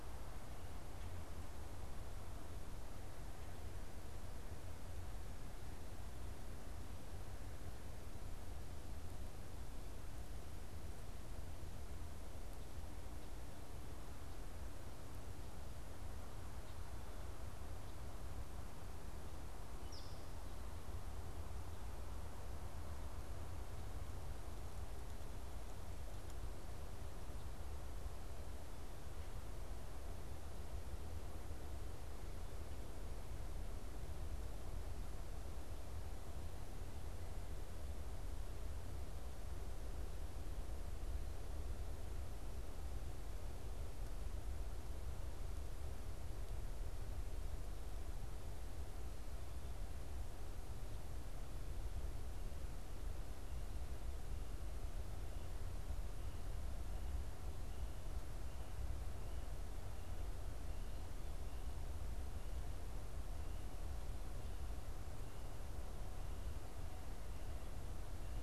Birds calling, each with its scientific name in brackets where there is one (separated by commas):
European Starling (Sturnus vulgaris)